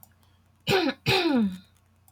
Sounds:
Throat clearing